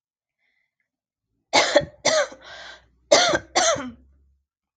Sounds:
Cough